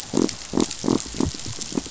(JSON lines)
{"label": "biophony", "recorder": "SoundTrap 500"}